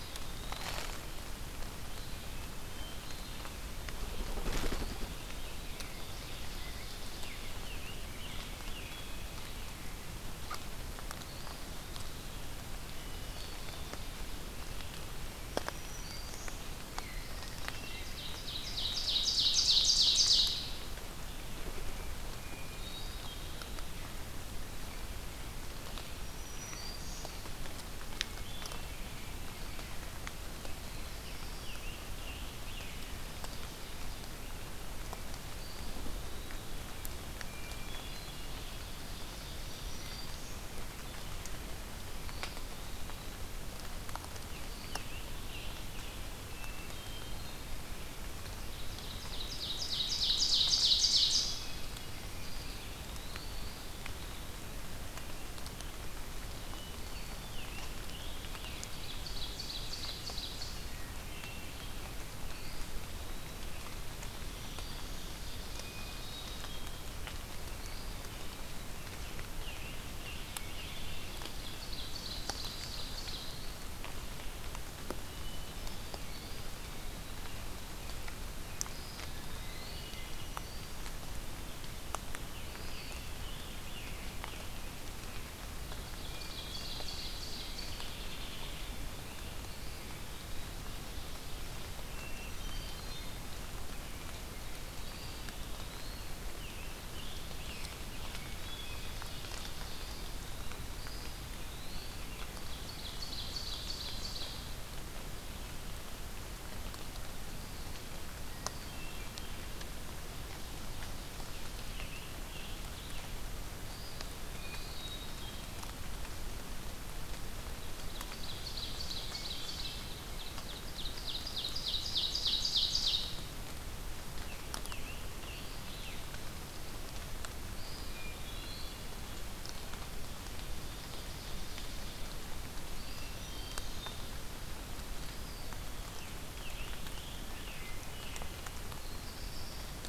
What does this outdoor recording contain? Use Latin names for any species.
Contopus virens, Vireo olivaceus, Catharus guttatus, Piranga olivacea, Setophaga virens, Seiurus aurocapilla, Setophaga caerulescens, Dryobates villosus